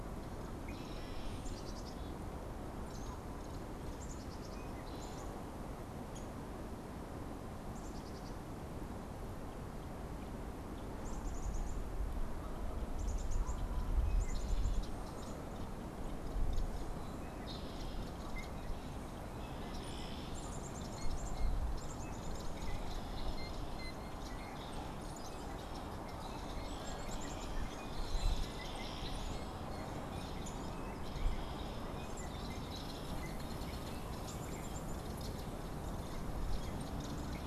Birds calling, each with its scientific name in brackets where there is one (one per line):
Downy Woodpecker (Dryobates pubescens)
unidentified bird
Black-capped Chickadee (Poecile atricapillus)
Blue Jay (Cyanocitta cristata)